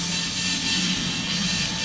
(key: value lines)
label: anthrophony, boat engine
recorder: SoundTrap 500